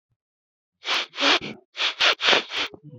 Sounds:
Sniff